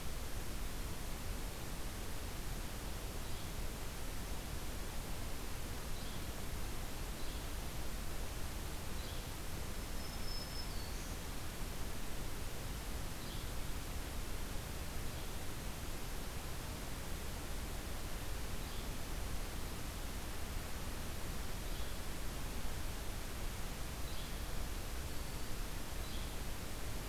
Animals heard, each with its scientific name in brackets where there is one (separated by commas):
Yellow-bellied Flycatcher (Empidonax flaviventris), Black-throated Green Warbler (Setophaga virens)